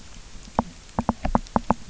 {"label": "biophony, knock", "recorder": "SoundTrap 300"}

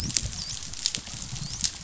{"label": "biophony, dolphin", "recorder": "SoundTrap 500"}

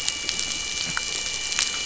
{"label": "anthrophony, boat engine", "recorder": "SoundTrap 500"}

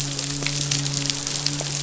{"label": "biophony, midshipman", "recorder": "SoundTrap 500"}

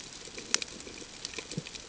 {"label": "ambient", "recorder": "HydroMoth"}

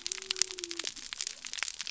{"label": "biophony", "recorder": "SoundTrap 300"}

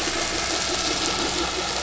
{"label": "anthrophony, boat engine", "recorder": "SoundTrap 500"}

